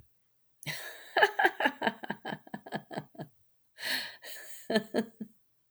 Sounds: Laughter